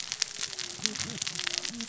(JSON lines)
{"label": "biophony, cascading saw", "recorder": "SoundTrap 600 or HydroMoth"}